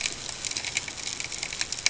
{"label": "ambient", "recorder": "HydroMoth"}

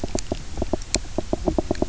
{"label": "biophony, knock croak", "recorder": "SoundTrap 300"}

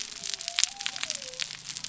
{"label": "biophony", "recorder": "SoundTrap 300"}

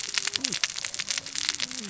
{"label": "biophony, cascading saw", "recorder": "SoundTrap 600 or HydroMoth"}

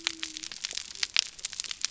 {"label": "biophony", "recorder": "SoundTrap 300"}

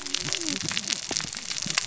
{"label": "biophony, cascading saw", "recorder": "SoundTrap 600 or HydroMoth"}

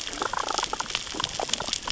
{"label": "biophony, damselfish", "recorder": "SoundTrap 600 or HydroMoth"}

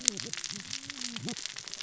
{"label": "biophony, cascading saw", "recorder": "SoundTrap 600 or HydroMoth"}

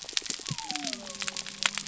{"label": "biophony", "recorder": "SoundTrap 300"}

